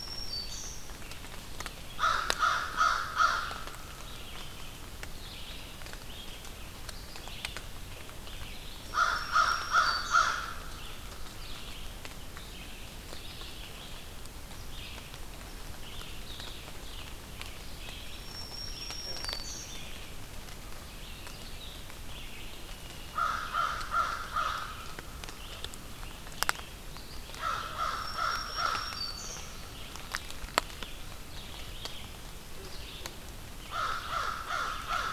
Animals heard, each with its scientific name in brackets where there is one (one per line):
Black-throated Green Warbler (Setophaga virens)
Red-eyed Vireo (Vireo olivaceus)
American Crow (Corvus brachyrhynchos)